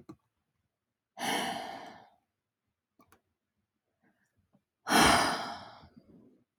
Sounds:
Sigh